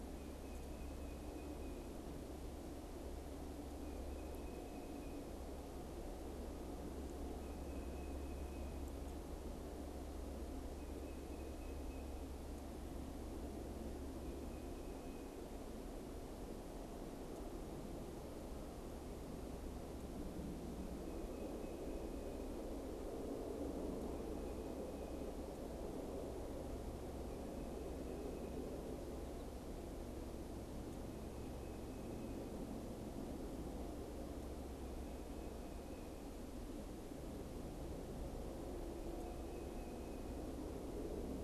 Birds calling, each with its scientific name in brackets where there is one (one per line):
Tufted Titmouse (Baeolophus bicolor)